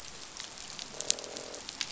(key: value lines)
label: biophony, croak
recorder: SoundTrap 500